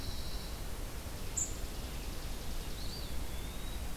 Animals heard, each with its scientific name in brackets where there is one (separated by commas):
unidentified call, Pine Warbler (Setophaga pinus), Eastern Wood-Pewee (Contopus virens), Chipping Sparrow (Spizella passerina)